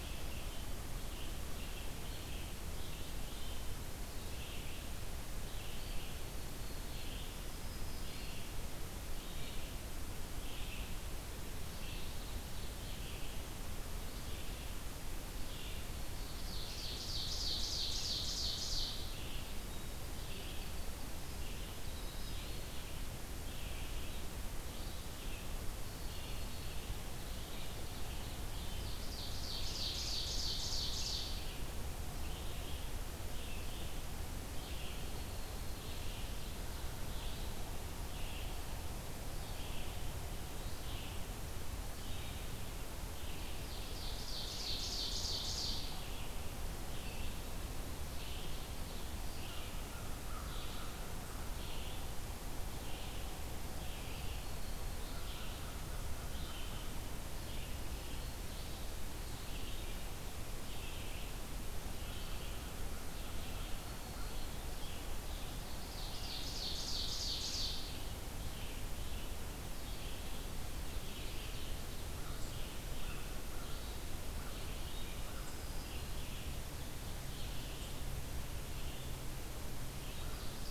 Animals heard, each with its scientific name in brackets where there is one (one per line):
Winter Wren (Troglodytes hiemalis)
American Crow (Corvus brachyrhynchos)
Red-eyed Vireo (Vireo olivaceus)
Black-throated Green Warbler (Setophaga virens)
Ovenbird (Seiurus aurocapilla)